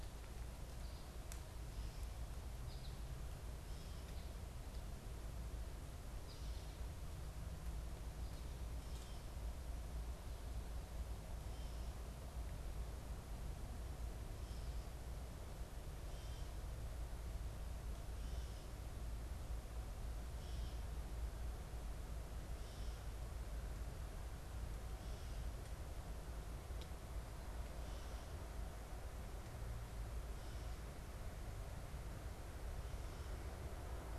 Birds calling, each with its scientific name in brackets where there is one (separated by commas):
Gray Catbird (Dumetella carolinensis), American Goldfinch (Spinus tristis)